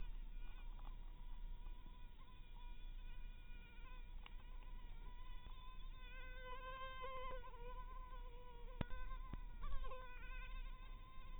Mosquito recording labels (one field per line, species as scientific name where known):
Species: mosquito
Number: one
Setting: cup